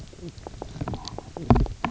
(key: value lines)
label: biophony, knock croak
recorder: SoundTrap 300